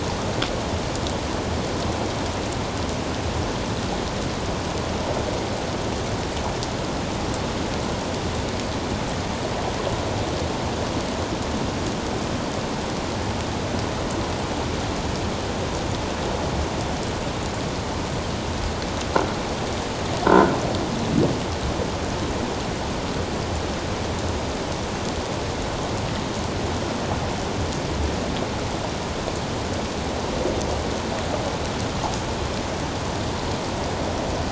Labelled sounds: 20.2	20.5	croaking sound likely from a nearby submerged object, 1.3 to 1.6 kHz

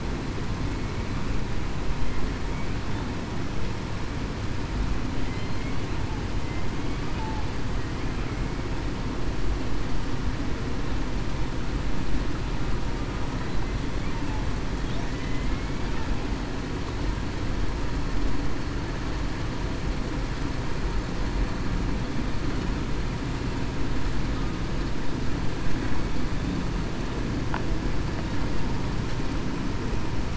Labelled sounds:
0.7	1.0	killer whale, southern resident, 2.2 to 2.3 kHz
15.1	15.4	killer whale, southern resident, 1.9 to 2.1 kHz

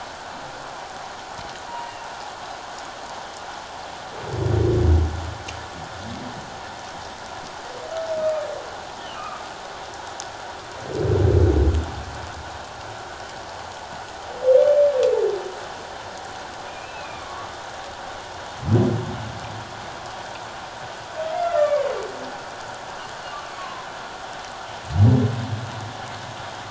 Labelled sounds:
8.2	8.5	humpback whale, 2.3 to 2.5 kHz
9.2	9.4	humpback whale, 1.1 to 1.4 kHz
16.7	17.5	humpback whale, 1.0 to 2.7 kHz
21.6	21.9	humpback whale, 1.0 to 1.2 kHz
23.6	23.9	humpback whale, 0.94 to 1.2 kHz

